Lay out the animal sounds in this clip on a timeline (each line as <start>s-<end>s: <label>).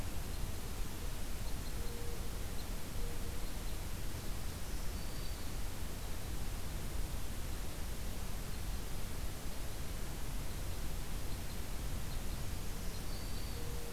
0.0s-6.4s: Red Crossbill (Loxia curvirostra)
4.4s-5.4s: Black-throated Green Warbler (Setophaga virens)
10.3s-13.6s: Red Crossbill (Loxia curvirostra)
12.4s-13.7s: Black-throated Green Warbler (Setophaga virens)